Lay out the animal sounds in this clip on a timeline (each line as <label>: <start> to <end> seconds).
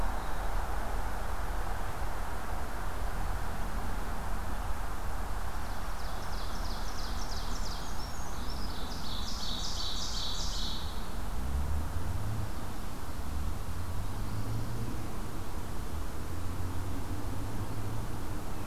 Dark-eyed Junco (Junco hyemalis): 0.0 to 0.8 seconds
Ovenbird (Seiurus aurocapilla): 5.4 to 7.9 seconds
Brown Creeper (Certhia americana): 7.5 to 8.8 seconds
Ovenbird (Seiurus aurocapilla): 8.3 to 11.2 seconds